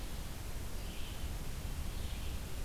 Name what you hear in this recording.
Red-eyed Vireo